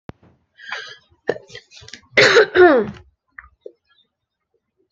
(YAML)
expert_labels:
- quality: ok
  cough_type: wet
  dyspnea: false
  wheezing: false
  stridor: false
  choking: false
  congestion: false
  nothing: true
  diagnosis: healthy cough
  severity: pseudocough/healthy cough
age: 22
gender: female
respiratory_condition: false
fever_muscle_pain: false
status: healthy